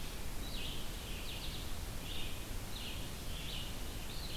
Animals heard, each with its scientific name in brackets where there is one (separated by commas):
Red-eyed Vireo (Vireo olivaceus)